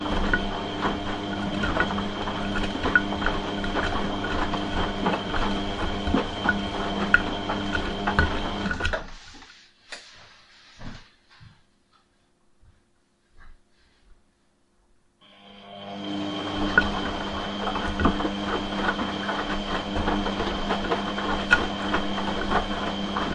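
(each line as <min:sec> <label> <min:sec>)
0:00.0 A washing machine is spinning. 0:09.5
0:00.0 An electronic device is humming. 0:09.5
0:15.5 A washing machine is spinning. 0:23.3
0:15.5 An electronic device is humming. 0:23.3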